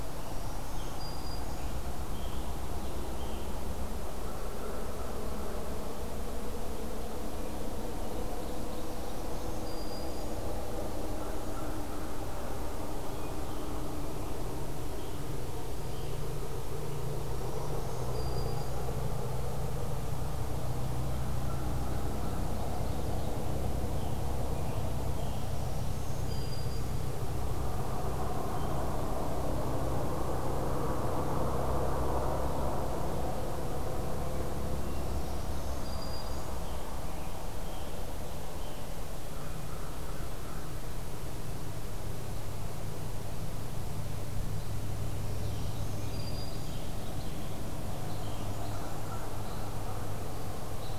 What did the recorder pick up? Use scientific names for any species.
Piranga olivacea, Setophaga virens, Seiurus aurocapilla, Corvus brachyrhynchos, Loxia curvirostra, Setophaga fusca